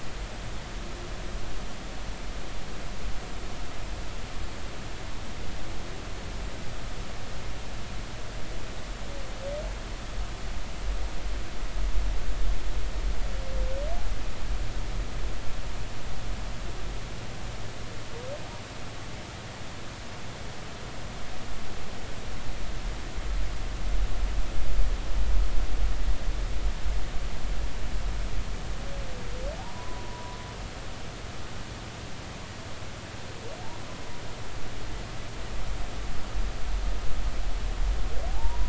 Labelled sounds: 29.6	30.4	humpback whale, 0.80 to 1.1 kHz
38.3	38.6	humpback whale, 0.80 to 1.0 kHz

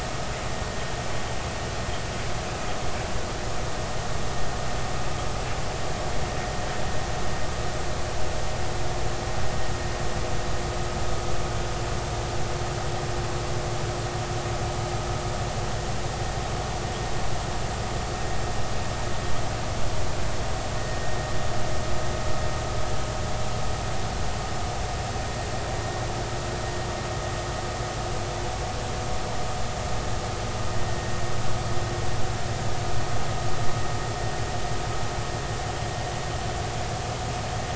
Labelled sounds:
20.8	21.2	vessel noise, 1.8 to 2.0 kHz

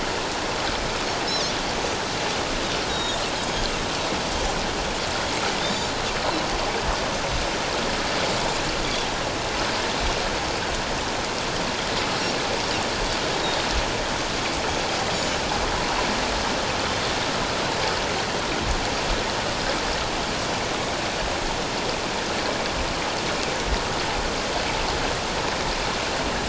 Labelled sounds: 2.9	3.2	Pacific white-sided dolphin, 3.5 to 3.9 kHz
15.1	15.4	Pacific white-sided dolphin, 6.7 to 7.0 kHz

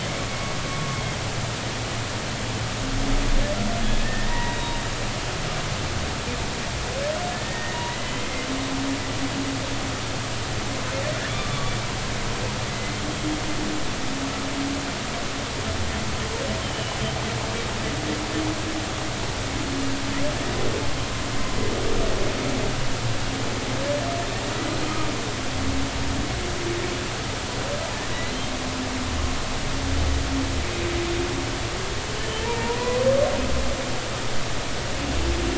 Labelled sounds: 0.0	1.0	humpback whale, 1.1 to 2.3 kHz
4.0	4.8	humpback whale, 0.90 to 3.8 kHz
7.3	8.3	humpback whale, 1.7 to 3.2 kHz
11.3	11.7	humpback whale, 1.1 to 1.2 kHz
12.7	13.0	humpback whale, 1.9 to 2.1 kHz
16.6	17.0	humpback whale, 2.9 to 3.2 kHz
28.1	28.4	humpback whale, 3.8 to 4.3 kHz
32.2	33.0	humpback whale, 0.86 to 3.1 kHz

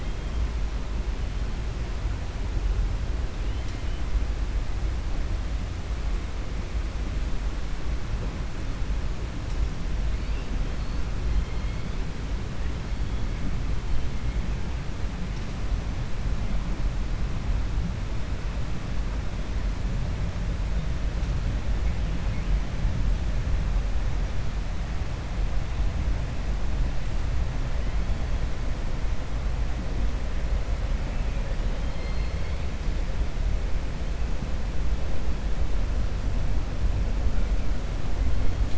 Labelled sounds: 31.8	32.6	killer whale, 1.2 to 4.4 kHz

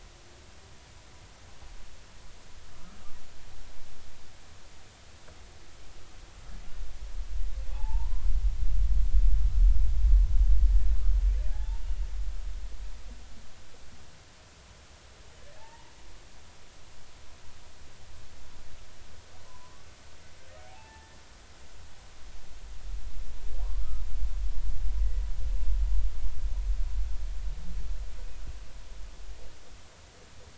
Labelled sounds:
7.7	8.3	humpback whale, 0.80 to 1.2 kHz
11.5	11.8	humpback whale, 0.80 to 0.96 kHz
15.6	15.9	humpback whale, 0.80 to 1.0 kHz
19.5	21.2	humpback whale, 0.80 to 1.9 kHz
25.5	25.7	humpback whale, 2.6 to 2.8 kHz

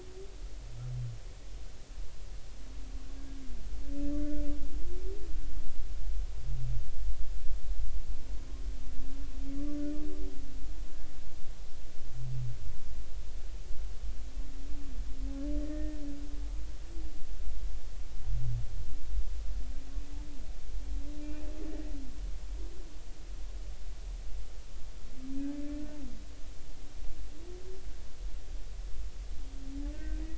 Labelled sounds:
4.2	4.4	humpback whale, 1.4 to 1.5 kHz
9.6	9.8	humpback whale, 1.1 to 1.2 kHz
15.6	16.0	humpback whale, 1.8 to 2.0 kHz
21.2	21.5	humpback whale, 2.3 to 2.6 kHz
29.9	30.2	humpback whale, 1.5 to 2.0 kHz

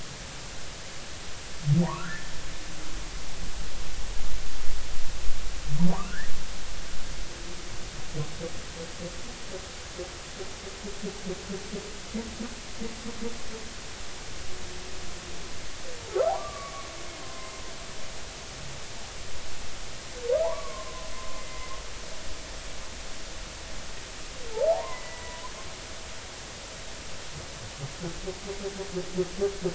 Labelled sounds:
1.8	2.3	humpback whale, 0.80 to 1.8 kHz
6.0	6.3	humpback whale, 1.3 to 2.0 kHz
16.3	17.6	humpback whale, 0.80 to 2.1 kHz
20.4	21.7	humpback whale, 0.80 to 2.1 kHz
24.5	25.4	humpback whale, 0.80 to 2.1 kHz

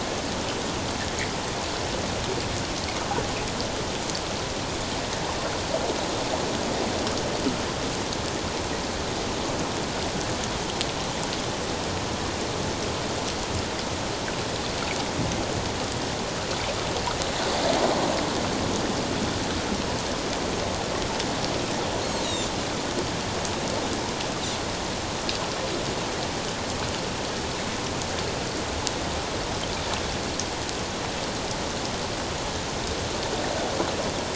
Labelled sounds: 22.2	22.5	Pacific white-sided dolphin, 3.5 to 4.1 kHz

